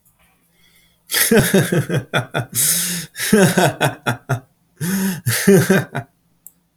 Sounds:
Laughter